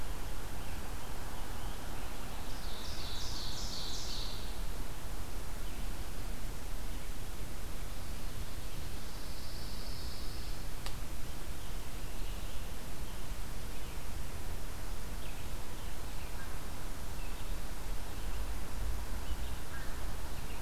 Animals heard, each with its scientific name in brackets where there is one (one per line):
Pine Warbler (Setophaga pinus)
Red-eyed Vireo (Vireo olivaceus)
Ovenbird (Seiurus aurocapilla)
American Crow (Corvus brachyrhynchos)
Scarlet Tanager (Piranga olivacea)